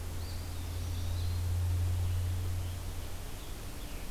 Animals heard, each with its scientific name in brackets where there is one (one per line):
Eastern Wood-Pewee (Contopus virens)
Scarlet Tanager (Piranga olivacea)